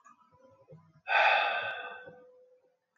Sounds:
Sigh